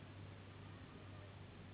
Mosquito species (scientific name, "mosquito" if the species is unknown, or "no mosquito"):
Anopheles gambiae s.s.